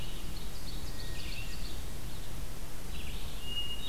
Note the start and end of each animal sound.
0.0s-1.9s: Ovenbird (Seiurus aurocapilla)
0.0s-3.9s: Red-eyed Vireo (Vireo olivaceus)
0.9s-1.8s: Hermit Thrush (Catharus guttatus)
3.2s-3.9s: Hermit Thrush (Catharus guttatus)

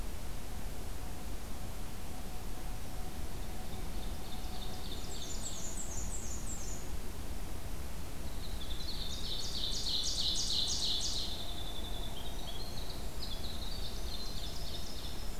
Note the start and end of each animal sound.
3.6s-5.8s: Ovenbird (Seiurus aurocapilla)
4.9s-6.9s: Black-and-white Warbler (Mniotilta varia)
8.1s-15.4s: Winter Wren (Troglodytes hiemalis)
8.7s-11.3s: Ovenbird (Seiurus aurocapilla)
13.9s-15.4s: Ovenbird (Seiurus aurocapilla)

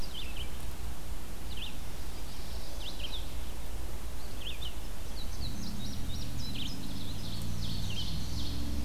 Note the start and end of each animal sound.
0.0s-8.2s: Red-eyed Vireo (Vireo olivaceus)
5.0s-6.9s: Indigo Bunting (Passerina cyanea)
6.5s-8.8s: Ovenbird (Seiurus aurocapilla)

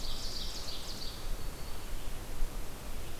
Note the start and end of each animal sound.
0.0s-1.3s: Ovenbird (Seiurus aurocapilla)

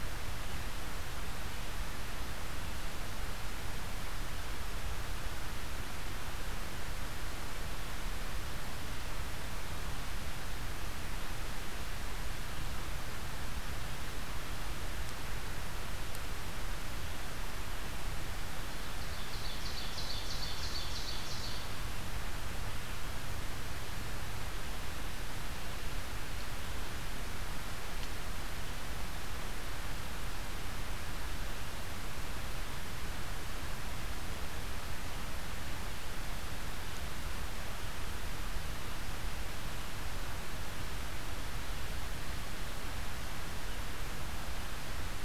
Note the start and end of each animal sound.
19.0s-21.7s: Ovenbird (Seiurus aurocapilla)

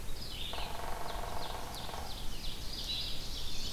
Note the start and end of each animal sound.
0.0s-3.7s: Red-eyed Vireo (Vireo olivaceus)
0.5s-2.2s: Hairy Woodpecker (Dryobates villosus)
0.7s-3.7s: Ovenbird (Seiurus aurocapilla)
2.8s-3.7s: Blue-headed Vireo (Vireo solitarius)

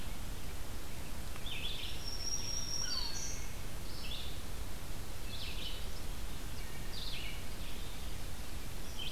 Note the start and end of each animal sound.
0.0s-9.1s: Red-eyed Vireo (Vireo olivaceus)
1.6s-3.6s: Black-throated Green Warbler (Setophaga virens)
2.9s-3.6s: Wood Thrush (Hylocichla mustelina)
6.2s-7.1s: Wood Thrush (Hylocichla mustelina)

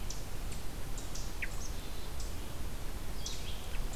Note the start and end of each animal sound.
0.0s-4.0s: Ovenbird (Seiurus aurocapilla)
1.6s-2.1s: Black-capped Chickadee (Poecile atricapillus)

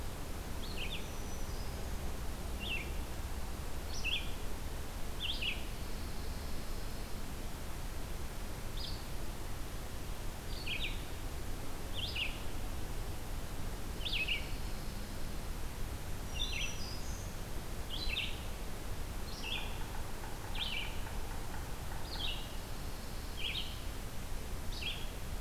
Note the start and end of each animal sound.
0.5s-25.4s: Red-eyed Vireo (Vireo olivaceus)
0.8s-2.3s: Black-throated Green Warbler (Setophaga virens)
5.6s-7.3s: Pine Warbler (Setophaga pinus)
13.9s-15.5s: Pine Warbler (Setophaga pinus)
15.9s-17.8s: Black-throated Green Warbler (Setophaga virens)
18.8s-22.3s: Yellow-bellied Sapsucker (Sphyrapicus varius)
22.2s-23.9s: Pine Warbler (Setophaga pinus)

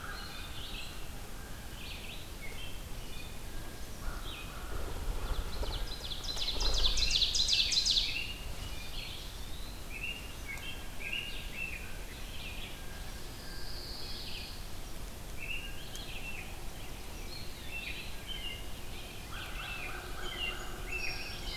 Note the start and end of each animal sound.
0.0s-21.6s: Red-eyed Vireo (Vireo olivaceus)
0.1s-1.0s: Eastern Wood-Pewee (Contopus virens)
2.3s-3.5s: American Robin (Turdus migratorius)
4.0s-5.0s: American Crow (Corvus brachyrhynchos)
5.0s-8.3s: Ovenbird (Seiurus aurocapilla)
6.2s-8.9s: American Robin (Turdus migratorius)
8.7s-10.1s: Eastern Wood-Pewee (Contopus virens)
9.8s-12.1s: American Robin (Turdus migratorius)
12.7s-13.9s: Blue Jay (Cyanocitta cristata)
13.2s-14.6s: Pine Warbler (Setophaga pinus)
15.2s-16.5s: American Robin (Turdus migratorius)
17.1s-18.7s: American Robin (Turdus migratorius)
17.2s-18.3s: Eastern Wood-Pewee (Contopus virens)
19.0s-20.7s: American Crow (Corvus brachyrhynchos)
19.1s-21.6s: American Robin (Turdus migratorius)
20.4s-21.6s: Song Sparrow (Melospiza melodia)

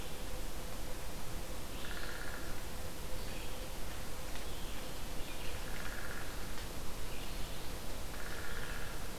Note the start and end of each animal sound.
1.4s-9.2s: Red-eyed Vireo (Vireo olivaceus)
1.7s-2.6s: Downy Woodpecker (Dryobates pubescens)
5.5s-6.5s: Downy Woodpecker (Dryobates pubescens)
8.0s-9.0s: Downy Woodpecker (Dryobates pubescens)

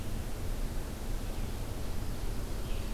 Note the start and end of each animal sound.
1.5s-2.9s: Ovenbird (Seiurus aurocapilla)

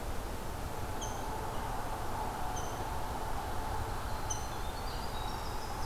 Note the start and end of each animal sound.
0.9s-5.9s: Rose-breasted Grosbeak (Pheucticus ludovicianus)
3.7s-5.9s: Winter Wren (Troglodytes hiemalis)

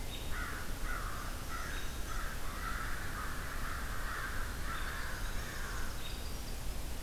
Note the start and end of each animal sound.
0.0s-0.4s: American Robin (Turdus migratorius)
0.3s-6.3s: American Crow (Corvus brachyrhynchos)
1.7s-2.0s: American Robin (Turdus migratorius)
4.3s-6.8s: Winter Wren (Troglodytes hiemalis)
4.7s-4.9s: American Robin (Turdus migratorius)
5.8s-6.3s: American Robin (Turdus migratorius)

